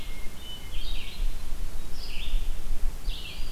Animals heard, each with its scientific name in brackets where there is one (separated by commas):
Red-eyed Vireo (Vireo olivaceus), Hermit Thrush (Catharus guttatus)